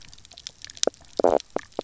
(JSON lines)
{"label": "biophony, knock croak", "recorder": "SoundTrap 300"}